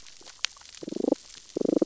{"label": "biophony, damselfish", "recorder": "SoundTrap 600 or HydroMoth"}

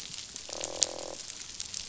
{"label": "biophony, croak", "recorder": "SoundTrap 500"}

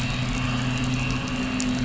{"label": "anthrophony, boat engine", "recorder": "SoundTrap 500"}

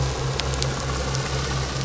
{"label": "biophony", "recorder": "SoundTrap 300"}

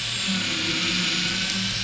{"label": "anthrophony, boat engine", "recorder": "SoundTrap 500"}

